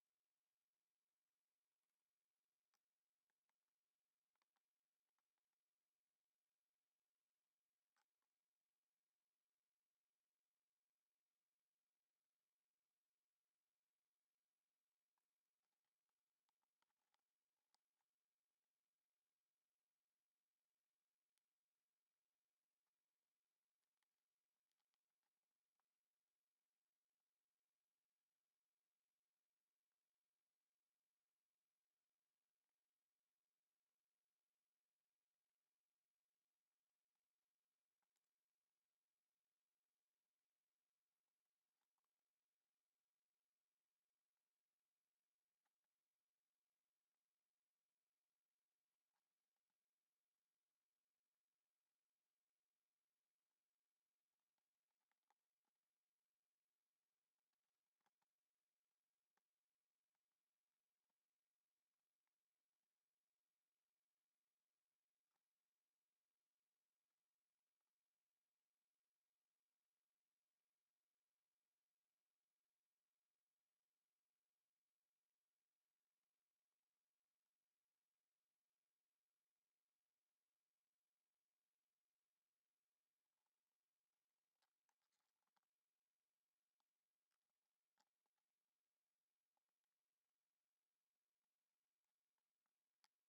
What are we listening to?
Synephippius obvius, an orthopteran